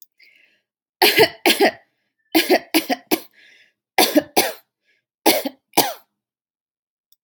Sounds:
Laughter